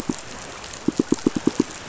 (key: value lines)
label: biophony, pulse
recorder: SoundTrap 500